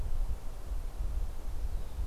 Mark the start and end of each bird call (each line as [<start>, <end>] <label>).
[0.00, 2.07] Western Tanager (Piranga ludoviciana)
[0.93, 2.07] Mountain Chickadee (Poecile gambeli)